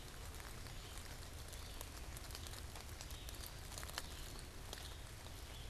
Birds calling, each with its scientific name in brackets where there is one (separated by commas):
unidentified bird, Red-eyed Vireo (Vireo olivaceus)